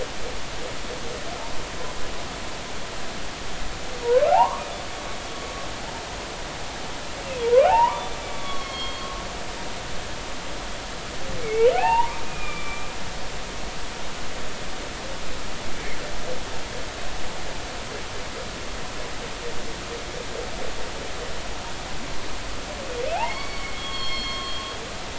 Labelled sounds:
4.0	4.7	humpback whale, 0.80 to 1.3 kHz
7.6	9.2	humpback whale, 0.80 to 4.5 kHz
11.4	12.9	humpback whale, 0.80 to 3.0 kHz
15.7	16.0	humpback whale, 1.7 to 2.4 kHz
23.1	24.6	humpback whale, 0.80 to 5.5 kHz

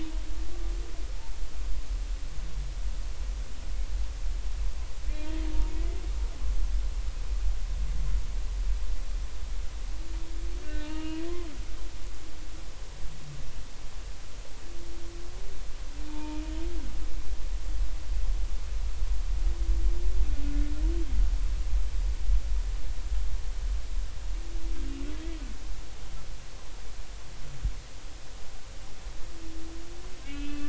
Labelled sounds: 10.6	11.2	humpback whale, 1.2 to 2.9 kHz
16.1	16.4	humpback whale, 0.86 to 2.5 kHz
30.2	30.6	humpback whale, 2.5 to 3.2 kHz

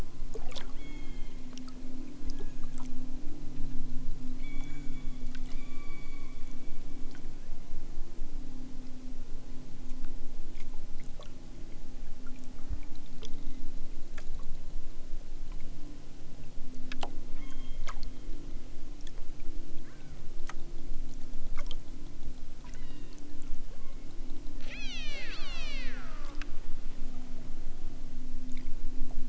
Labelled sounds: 0.8	1.6	killer whale, southern Alaska resident, 1.7 to 4.2 kHz
2.2	3.0	killer whale, southern Alaska resident, 1.4 to 7.0 kHz
4.3	6.9	killer whale, southern Alaska resident, 0.78 to 8.0 kHz
7.3	7.9	killer whale, southern Alaska resident, 1.1 to 2.6 kHz
17.3	18.4	killer whale, southern Alaska resident, 0.83 to 3.8 kHz
19.8	20.3	killer whale, southern Alaska resident, 0.96 to 2.7 kHz
22.6	23.2	killer whale, southern Alaska resident, 0.69 to 5.2 kHz
23.7	24.1	killer whale, southern Alaska resident, 0.87 to 2.6 kHz
24.5	26.5	killer whale, southern Alaska resident, 0.64 to 8.0 kHz

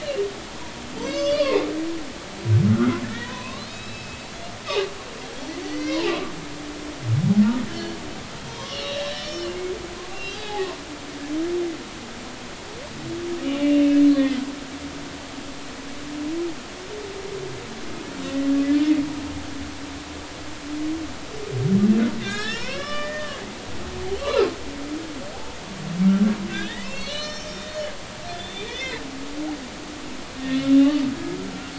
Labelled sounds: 1.0	1.7	humpback whale, 0.99 to 6.4 kHz
2.7	4.2	humpback whale, 0.93 to 5.3 kHz
5.6	6.2	humpback whale, 0.80 to 4.9 kHz
7.7	8.0	humpback whale, 1.6 to 3.1 kHz
8.5	9.6	humpback whale, 0.86 to 6.0 kHz
10.1	10.7	humpback whale, 0.80 to 2.8 kHz
13.6	14.0	humpback whale, 2.5 to 2.9 kHz
18.3	18.5	humpback whale, 1.9 to 2.0 kHz
22.2	23.4	humpback whale, 0.93 to 5.7 kHz
25.3	25.6	humpback whale, 0.80 to 0.93 kHz
26.5	27.8	humpback whale, 1.5 to 7.4 kHz
28.3	29.0	humpback whale, 1.9 to 3.7 kHz
30.4	30.7	humpback whale, 1.8 to 1.9 kHz

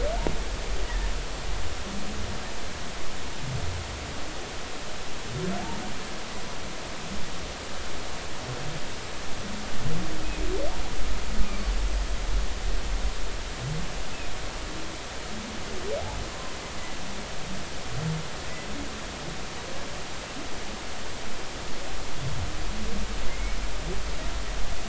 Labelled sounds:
23.2	23.6	humpback whale, 2.0 to 2.3 kHz

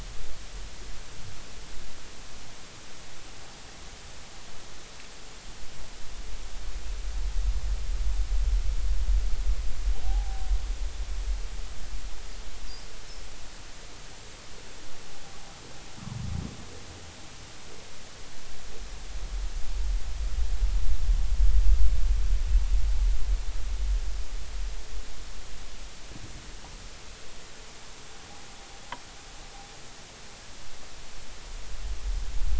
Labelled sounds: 10.0	10.5	humpback whale, 0.80 to 0.90 kHz

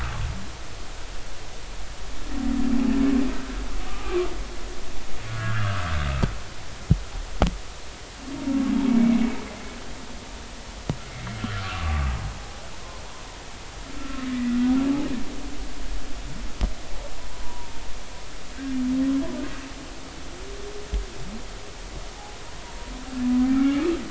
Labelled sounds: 3.9	4.3	humpback whale, 1.1 to 1.3 kHz
5.3	5.8	humpback whale, 1.1 to 1.8 kHz
8.9	9.2	humpback whale, 2.1 to 2.3 kHz
11.4	12.1	humpback whale, 1.1 to 1.6 kHz
14.0	14.6	humpback whale, 1.2 to 2.0 kHz
17.4	17.8	humpback whale, 0.90 to 1.0 kHz
18.5	18.7	humpback whale, 1.5 to 1.7 kHz
22.6	23.8	humpback whale, 0.90 to 2.5 kHz

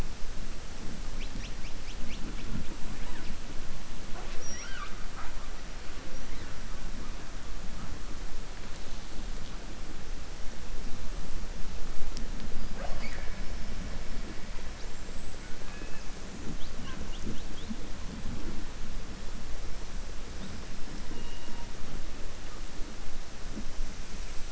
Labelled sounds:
15.6	16.0	killer whale, southern resident, 1.1 to 2.7 kHz

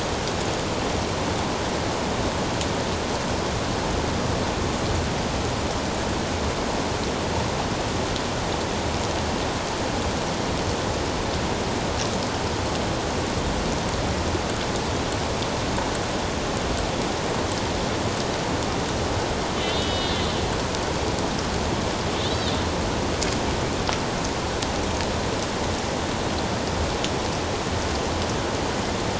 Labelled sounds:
19.6	20.3	killer whale, northern resident, A clan, AB subclan, 1.9 to 4.9 kHz
22.3	22.6	killer whale, northern resident, A clan, AB subclan, 3.4 to 4.1 kHz

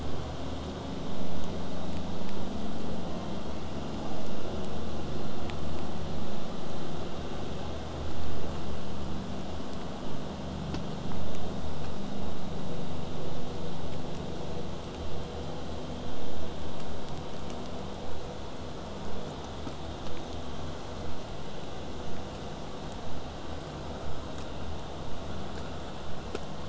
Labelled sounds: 3.0	4.3	killer whale, southern resident, J pod, call S01, 0.36 to 4.7 kHz
18.0	23.0	vessel noise, 0 to 8.0 kHz

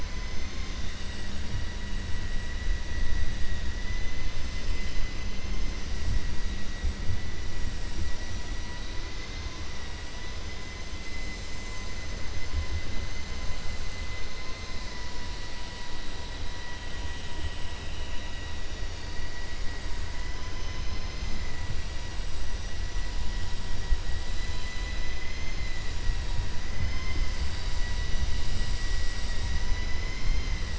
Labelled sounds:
29.9	30.6	vessel noise, 2.0 to 4.2 kHz

